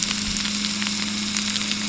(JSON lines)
{"label": "anthrophony, boat engine", "recorder": "SoundTrap 300"}